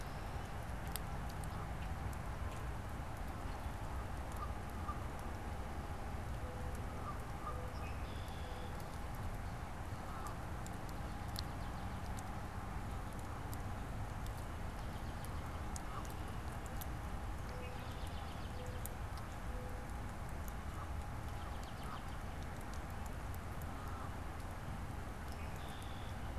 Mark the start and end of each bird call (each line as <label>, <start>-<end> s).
Common Grackle (Quiscalus quiscula), 0.0-2.9 s
Mourning Dove (Zenaida macroura), 4.0-8.8 s
Red-winged Blackbird (Agelaius phoeniceus), 7.6-8.9 s
American Robin (Turdus migratorius), 10.6-12.1 s
American Robin (Turdus migratorius), 14.3-15.6 s
Canada Goose (Branta canadensis), 15.7-16.3 s
Mourning Dove (Zenaida macroura), 16.1-20.2 s
American Robin (Turdus migratorius), 17.6-18.9 s
Canada Goose (Branta canadensis), 20.2-25.2 s
American Robin (Turdus migratorius), 21.1-22.4 s
Red-winged Blackbird (Agelaius phoeniceus), 25.2-26.3 s